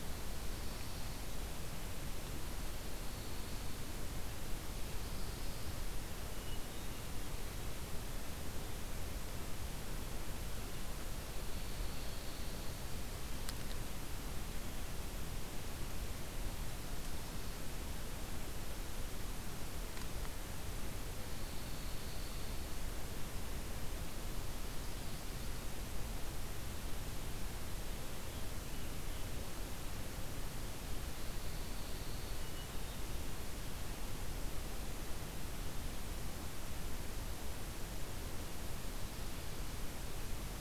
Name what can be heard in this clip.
Pine Warbler, Hermit Thrush